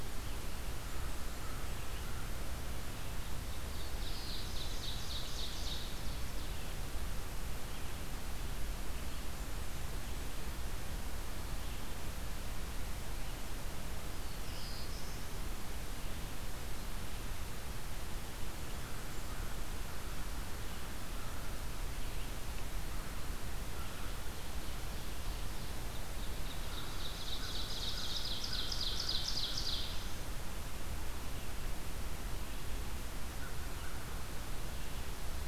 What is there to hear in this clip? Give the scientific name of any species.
Vireo olivaceus, Setophaga fusca, Corvus brachyrhynchos, Setophaga caerulescens, Seiurus aurocapilla